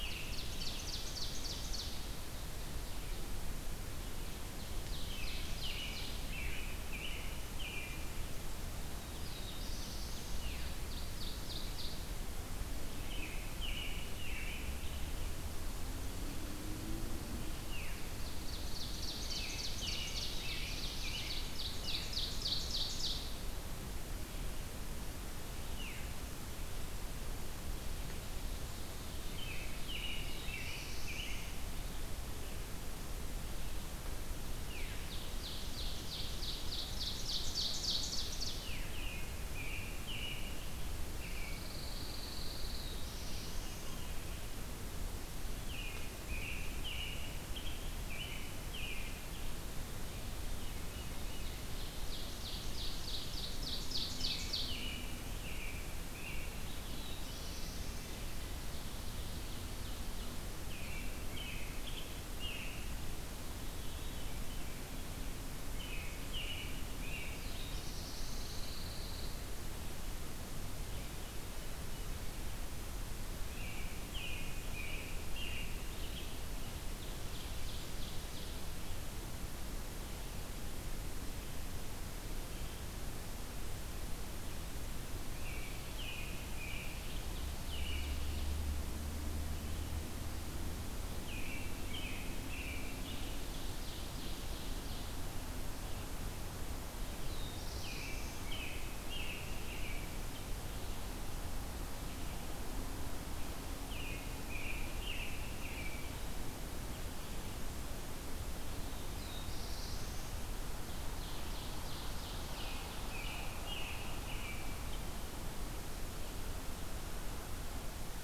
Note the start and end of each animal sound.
0.0s-1.0s: American Robin (Turdus migratorius)
0.0s-3.3s: Ovenbird (Seiurus aurocapilla)
4.3s-6.3s: Ovenbird (Seiurus aurocapilla)
4.9s-8.4s: American Robin (Turdus migratorius)
8.8s-10.6s: Black-throated Blue Warbler (Setophaga caerulescens)
10.2s-10.9s: Veery (Catharus fuscescens)
10.5s-12.3s: Ovenbird (Seiurus aurocapilla)
12.8s-15.0s: American Robin (Turdus migratorius)
17.6s-18.1s: Veery (Catharus fuscescens)
17.9s-19.7s: Pine Warbler (Setophaga pinus)
18.1s-20.4s: Ovenbird (Seiurus aurocapilla)
19.1s-22.5s: American Robin (Turdus migratorius)
19.9s-21.4s: Black-throated Blue Warbler (Setophaga caerulescens)
21.0s-23.5s: Ovenbird (Seiurus aurocapilla)
25.7s-26.1s: Veery (Catharus fuscescens)
28.8s-31.9s: American Robin (Turdus migratorius)
29.6s-31.7s: Black-throated Blue Warbler (Setophaga caerulescens)
34.5s-35.0s: Veery (Catharus fuscescens)
34.5s-38.7s: Ovenbird (Seiurus aurocapilla)
38.5s-38.9s: Veery (Catharus fuscescens)
38.9s-41.6s: American Robin (Turdus migratorius)
41.4s-43.0s: Pine Warbler (Setophaga pinus)
42.4s-44.1s: Black-throated Blue Warbler (Setophaga caerulescens)
45.6s-49.6s: American Robin (Turdus migratorius)
50.3s-51.6s: Veery (Catharus fuscescens)
51.6s-54.8s: Ovenbird (Seiurus aurocapilla)
53.9s-56.9s: American Robin (Turdus migratorius)
56.3s-58.3s: Black-throated Blue Warbler (Setophaga caerulescens)
58.7s-60.5s: Ovenbird (Seiurus aurocapilla)
60.4s-63.3s: American Robin (Turdus migratorius)
63.6s-65.0s: Veery (Catharus fuscescens)
65.5s-67.9s: American Robin (Turdus migratorius)
67.0s-68.9s: Black-throated Blue Warbler (Setophaga caerulescens)
67.9s-69.4s: Pine Warbler (Setophaga pinus)
73.4s-76.2s: American Robin (Turdus migratorius)
76.1s-78.8s: Ovenbird (Seiurus aurocapilla)
85.2s-88.5s: American Robin (Turdus migratorius)
86.6s-88.6s: Ovenbird (Seiurus aurocapilla)
90.9s-93.9s: American Robin (Turdus migratorius)
92.7s-95.4s: Ovenbird (Seiurus aurocapilla)
96.8s-98.6s: Black-throated Blue Warbler (Setophaga caerulescens)
97.3s-100.3s: American Robin (Turdus migratorius)
103.7s-106.2s: American Robin (Turdus migratorius)
108.6s-110.5s: Black-throated Blue Warbler (Setophaga caerulescens)
110.8s-113.0s: Ovenbird (Seiurus aurocapilla)
112.7s-114.9s: American Robin (Turdus migratorius)

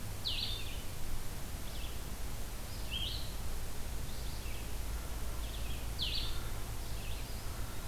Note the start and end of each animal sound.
0.0s-7.9s: Blue-headed Vireo (Vireo solitarius)
0.0s-7.9s: Red-eyed Vireo (Vireo olivaceus)
6.9s-7.9s: Eastern Wood-Pewee (Contopus virens)

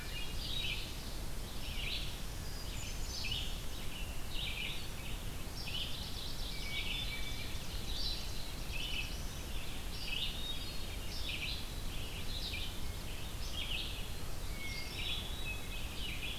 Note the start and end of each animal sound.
0.0s-0.8s: Hermit Thrush (Catharus guttatus)
0.0s-10.4s: Red-eyed Vireo (Vireo olivaceus)
2.4s-3.8s: Hermit Thrush (Catharus guttatus)
5.5s-6.9s: Mourning Warbler (Geothlypis philadelphia)
6.5s-7.7s: Hermit Thrush (Catharus guttatus)
6.8s-8.3s: Ovenbird (Seiurus aurocapilla)
8.2s-9.5s: Black-throated Blue Warbler (Setophaga caerulescens)
10.2s-11.2s: Hermit Thrush (Catharus guttatus)
10.8s-16.4s: Red-eyed Vireo (Vireo olivaceus)
14.4s-16.0s: Hermit Thrush (Catharus guttatus)

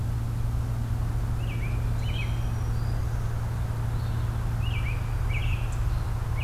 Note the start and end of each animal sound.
1.3s-2.5s: American Robin (Turdus migratorius)
2.0s-3.3s: Black-throated Green Warbler (Setophaga virens)
4.5s-6.4s: American Robin (Turdus migratorius)

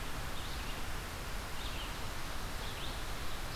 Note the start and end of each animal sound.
0.0s-3.6s: Red-eyed Vireo (Vireo olivaceus)

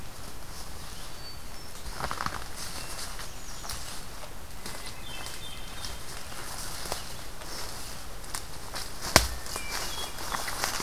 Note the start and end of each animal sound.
1.0s-2.3s: Hermit Thrush (Catharus guttatus)
2.7s-3.9s: American Redstart (Setophaga ruticilla)
4.6s-6.0s: Hermit Thrush (Catharus guttatus)
9.1s-10.6s: Hermit Thrush (Catharus guttatus)

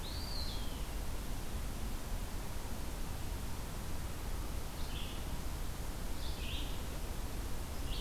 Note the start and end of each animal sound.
0.0s-0.9s: Eastern Wood-Pewee (Contopus virens)
4.6s-8.0s: Red-eyed Vireo (Vireo olivaceus)

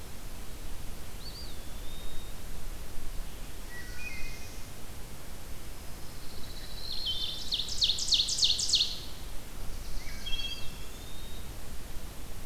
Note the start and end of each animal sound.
1.0s-2.5s: Eastern Wood-Pewee (Contopus virens)
3.5s-4.6s: Wood Thrush (Hylocichla mustelina)
3.6s-4.8s: Black-throated Blue Warbler (Setophaga caerulescens)
6.1s-7.7s: Pine Warbler (Setophaga pinus)
6.5s-7.4s: Wood Thrush (Hylocichla mustelina)
6.8s-9.1s: Ovenbird (Seiurus aurocapilla)
9.4s-10.8s: Black-throated Blue Warbler (Setophaga caerulescens)
9.9s-10.8s: Wood Thrush (Hylocichla mustelina)
10.3s-11.6s: Eastern Wood-Pewee (Contopus virens)

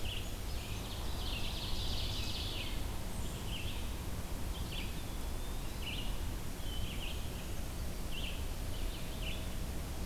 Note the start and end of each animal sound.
0.0s-10.1s: Red-eyed Vireo (Vireo olivaceus)
0.2s-1.1s: Brown Creeper (Certhia americana)
0.5s-2.8s: Ovenbird (Seiurus aurocapilla)
4.3s-6.1s: Eastern Wood-Pewee (Contopus virens)

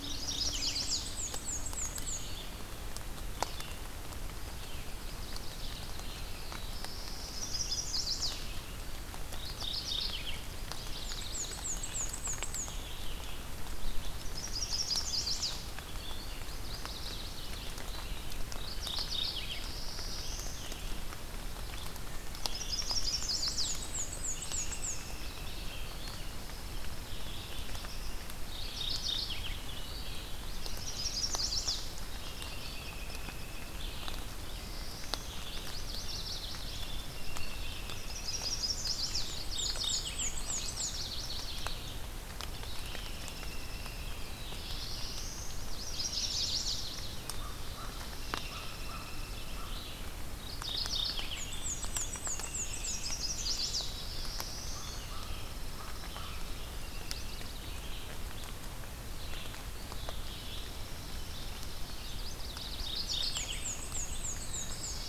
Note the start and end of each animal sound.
0.0s-0.6s: Mourning Warbler (Geothlypis philadelphia)
0.0s-1.2s: Chestnut-sided Warbler (Setophaga pensylvanica)
0.0s-20.8s: Red-eyed Vireo (Vireo olivaceus)
0.4s-2.4s: Black-and-white Warbler (Mniotilta varia)
4.7s-5.9s: Yellow-rumped Warbler (Setophaga coronata)
5.9s-7.6s: Black-throated Blue Warbler (Setophaga caerulescens)
7.3s-8.6s: Chestnut-sided Warbler (Setophaga pensylvanica)
9.2s-10.6s: Mourning Warbler (Geothlypis philadelphia)
10.5s-11.7s: Yellow-rumped Warbler (Setophaga coronata)
10.9s-13.0s: Black-and-white Warbler (Mniotilta varia)
14.3s-15.7s: Chestnut-sided Warbler (Setophaga pensylvanica)
16.3s-17.7s: Yellow-rumped Warbler (Setophaga coronata)
18.3s-19.8s: Mourning Warbler (Geothlypis philadelphia)
19.0s-20.8s: Black-throated Blue Warbler (Setophaga caerulescens)
20.4s-22.0s: Pine Warbler (Setophaga pinus)
21.6s-65.1s: Red-eyed Vireo (Vireo olivaceus)
21.9s-22.8s: Wood Thrush (Hylocichla mustelina)
22.4s-23.7s: Chestnut-sided Warbler (Setophaga pensylvanica)
23.3s-25.3s: Black-and-white Warbler (Mniotilta varia)
24.4s-25.8s: American Robin (Turdus migratorius)
25.9s-28.0s: Pine Warbler (Setophaga pinus)
28.4s-29.5s: Mourning Warbler (Geothlypis philadelphia)
30.8s-32.0s: Chestnut-sided Warbler (Setophaga pensylvanica)
31.9s-34.0s: American Robin (Turdus migratorius)
34.0s-35.4s: Black-throated Blue Warbler (Setophaga caerulescens)
35.3s-36.9s: Yellow-rumped Warbler (Setophaga coronata)
36.1s-37.9s: Pine Warbler (Setophaga pinus)
38.0s-39.3s: Chestnut-sided Warbler (Setophaga pensylvanica)
39.1s-41.0s: Black-and-white Warbler (Mniotilta varia)
39.2s-40.4s: Mourning Warbler (Geothlypis philadelphia)
40.3s-42.0s: Yellow-rumped Warbler (Setophaga coronata)
42.3s-44.3s: Pine Warbler (Setophaga pinus)
44.1s-45.7s: Black-throated Blue Warbler (Setophaga caerulescens)
45.4s-47.3s: Yellow-rumped Warbler (Setophaga coronata)
45.6s-47.0s: Chestnut-sided Warbler (Setophaga pensylvanica)
47.2s-50.1s: American Crow (Corvus brachyrhynchos)
47.9s-49.8s: Pine Warbler (Setophaga pinus)
48.3s-49.7s: American Robin (Turdus migratorius)
50.2s-51.5s: Mourning Warbler (Geothlypis philadelphia)
51.2s-53.1s: Black-and-white Warbler (Mniotilta varia)
52.2s-53.6s: American Robin (Turdus migratorius)
52.7s-54.0s: Chestnut-sided Warbler (Setophaga pensylvanica)
53.3s-55.3s: Black-throated Blue Warbler (Setophaga caerulescens)
54.5s-56.5s: American Crow (Corvus brachyrhynchos)
54.9s-56.8s: Pine Warbler (Setophaga pinus)
56.6s-57.7s: Yellow-rumped Warbler (Setophaga coronata)
60.2s-61.9s: Pine Warbler (Setophaga pinus)
61.9s-63.1s: Yellow-rumped Warbler (Setophaga coronata)
62.5s-63.6s: Mourning Warbler (Geothlypis philadelphia)
63.0s-65.1s: Black-and-white Warbler (Mniotilta varia)
64.0s-65.1s: Black-throated Blue Warbler (Setophaga caerulescens)

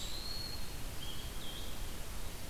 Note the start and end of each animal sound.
0.0s-0.9s: Eastern Wood-Pewee (Contopus virens)
0.0s-2.5s: Blue-headed Vireo (Vireo solitarius)
0.0s-2.5s: Red-eyed Vireo (Vireo olivaceus)

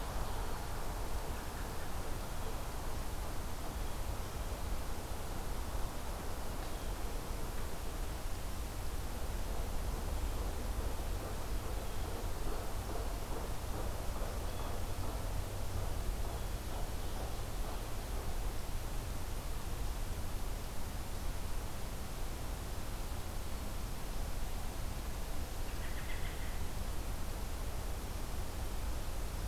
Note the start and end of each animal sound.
25.4s-26.7s: American Robin (Turdus migratorius)

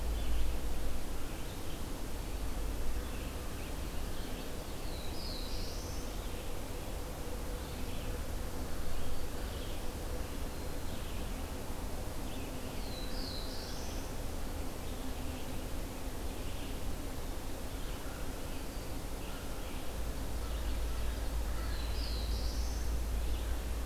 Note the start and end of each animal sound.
0.0s-23.9s: Red-eyed Vireo (Vireo olivaceus)
4.8s-6.0s: Black-throated Blue Warbler (Setophaga caerulescens)
10.4s-11.1s: Black-throated Green Warbler (Setophaga virens)
12.7s-14.0s: Black-throated Blue Warbler (Setophaga caerulescens)
21.5s-23.1s: Black-throated Blue Warbler (Setophaga caerulescens)

